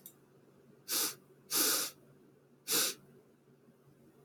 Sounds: Sniff